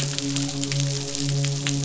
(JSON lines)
{"label": "biophony, midshipman", "recorder": "SoundTrap 500"}